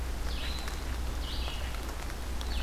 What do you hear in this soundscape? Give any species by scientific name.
Vireo olivaceus